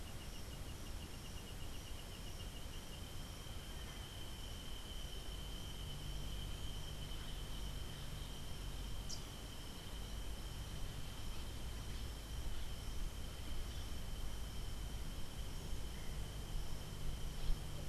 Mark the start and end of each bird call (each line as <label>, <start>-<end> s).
Rufous-capped Warbler (Basileuterus rufifrons), 9.0-9.3 s